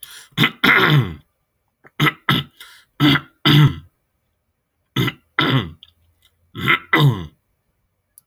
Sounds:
Throat clearing